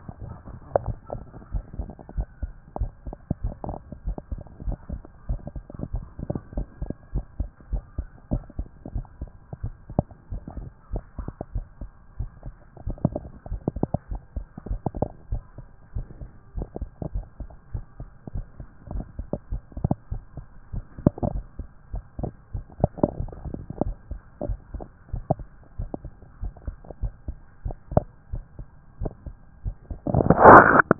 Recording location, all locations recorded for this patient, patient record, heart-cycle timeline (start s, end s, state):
pulmonary valve (PV)
aortic valve (AV)+pulmonary valve (PV)+tricuspid valve (TV)+mitral valve (MV)
#Age: Child
#Sex: Male
#Height: 124.0 cm
#Weight: 35.8 kg
#Pregnancy status: False
#Murmur: Absent
#Murmur locations: nan
#Most audible location: nan
#Systolic murmur timing: nan
#Systolic murmur shape: nan
#Systolic murmur grading: nan
#Systolic murmur pitch: nan
#Systolic murmur quality: nan
#Diastolic murmur timing: nan
#Diastolic murmur shape: nan
#Diastolic murmur grading: nan
#Diastolic murmur pitch: nan
#Diastolic murmur quality: nan
#Outcome: Abnormal
#Campaign: 2014 screening campaign
0.00	0.20	diastole
0.20	0.32	S1
0.32	0.46	systole
0.46	0.56	S2
0.56	0.82	diastole
0.82	0.96	S1
0.96	1.12	systole
1.12	1.24	S2
1.24	1.52	diastole
1.52	1.64	S1
1.64	1.78	systole
1.78	1.88	S2
1.88	2.14	diastole
2.14	2.26	S1
2.26	2.42	systole
2.42	2.52	S2
2.52	2.80	diastole
2.80	2.92	S1
2.92	3.06	systole
3.06	3.16	S2
3.16	3.42	diastole
3.42	3.56	S1
3.56	3.68	systole
3.68	3.78	S2
3.78	4.06	diastole
4.06	4.16	S1
4.16	4.30	systole
4.30	4.40	S2
4.40	4.66	diastole
4.66	4.78	S1
4.78	4.92	systole
4.92	5.02	S2
5.02	5.28	diastole
5.28	5.40	S1
5.40	5.54	systole
5.54	5.64	S2
5.64	5.92	diastole
5.92	6.04	S1
6.04	6.18	systole
6.18	6.28	S2
6.28	6.54	diastole
6.54	6.66	S1
6.66	6.80	systole
6.80	6.90	S2
6.90	7.14	diastole
7.14	7.24	S1
7.24	7.38	systole
7.38	7.48	S2
7.48	7.72	diastole
7.72	7.84	S1
7.84	7.96	systole
7.96	8.06	S2
8.06	8.32	diastole
8.32	8.44	S1
8.44	8.58	systole
8.58	8.68	S2
8.68	8.94	diastole
8.94	9.06	S1
9.06	9.22	systole
9.22	9.32	S2
9.32	9.62	diastole
9.62	9.76	S1
9.76	9.94	systole
9.94	10.06	S2
10.06	10.32	diastole
10.32	10.44	S1
10.44	10.58	systole
10.58	10.68	S2
10.68	10.92	diastole
10.92	11.02	S1
11.02	11.16	systole
11.16	11.26	S2
11.26	11.54	diastole
11.54	11.66	S1
11.66	11.80	systole
11.80	11.90	S2
11.90	12.18	diastole
12.18	12.30	S1
12.30	12.46	systole
12.46	12.56	S2
12.56	12.84	diastole
12.84	12.98	S1
12.98	13.12	systole
13.12	13.24	S2
13.24	13.50	diastole
13.50	13.62	S1
13.62	13.76	systole
13.76	13.88	S2
13.88	14.12	diastole
14.12	14.22	S1
14.22	14.34	systole
14.34	14.44	S2
14.44	14.68	diastole
14.68	14.80	S1
14.80	14.96	systole
14.96	15.08	S2
15.08	15.32	diastole
15.32	15.44	S1
15.44	15.58	systole
15.58	15.68	S2
15.68	15.94	diastole
15.94	16.06	S1
16.06	16.20	systole
16.20	16.30	S2
16.30	16.56	diastole
16.56	16.68	S1
16.68	16.80	systole
16.80	16.90	S2
16.90	17.14	diastole
17.14	17.26	S1
17.26	17.40	systole
17.40	17.48	S2
17.48	17.74	diastole
17.74	17.84	S1
17.84	17.98	systole
17.98	18.08	S2
18.08	18.36	diastole
18.36	18.46	S1
18.46	18.58	systole
18.58	18.66	S2
18.66	18.92	diastole
18.92	19.06	S1
19.06	19.20	systole
19.20	19.28	S2
19.28	19.52	diastole
19.52	19.62	S1
19.62	19.74	systole
19.74	19.82	S2
19.82	20.10	diastole
20.10	20.22	S1
20.22	20.36	systole
20.36	20.46	S2
20.46	20.74	diastole
20.74	20.84	S1
20.84	20.96	systole
20.96	21.04	S2
21.04	21.32	diastole
21.32	21.44	S1
21.44	21.58	systole
21.58	21.68	S2
21.68	21.94	diastole
21.94	22.06	S1
22.06	22.20	systole
22.20	22.32	S2
22.32	22.54	diastole
22.54	22.64	S1
22.64	22.78	systole
22.78	22.88	S2
22.88	23.16	diastole
23.16	23.30	S1
23.30	23.44	systole
23.44	23.54	S2
23.54	23.82	diastole
23.82	23.96	S1
23.96	24.10	systole
24.10	24.20	S2
24.20	24.48	diastole
24.48	24.60	S1
24.60	24.74	systole
24.74	24.86	S2
24.86	25.12	diastole
25.12	25.24	S1
25.24	25.38	systole
25.38	25.48	S2
25.48	25.76	diastole
25.76	25.88	S1
25.88	26.02	systole
26.02	26.12	S2
26.12	26.40	diastole
26.40	26.52	S1
26.52	26.66	systole
26.66	26.76	S2
26.76	27.02	diastole
27.02	27.14	S1
27.14	27.26	systole
27.26	27.36	S2
27.36	27.64	diastole
27.64	27.76	S1
27.76	27.92	systole
27.92	28.02	S2
28.02	28.32	diastole
28.32	28.44	S1
28.44	28.60	systole
28.60	28.70	S2
28.70	29.00	diastole
29.00	29.12	S1
29.12	29.28	systole
29.28	29.38	S2
29.38	29.66	diastole
29.66	29.82	S1
29.82	30.04	systole
30.04	30.18	S2
30.18	30.80	diastole
30.80	30.88	S1
30.88	30.99	systole